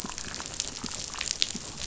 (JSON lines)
{"label": "biophony, chatter", "recorder": "SoundTrap 500"}